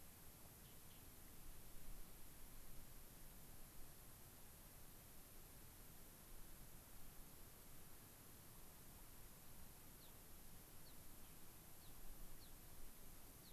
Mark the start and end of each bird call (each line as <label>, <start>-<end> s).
American Pipit (Anthus rubescens), 9.8-13.5 s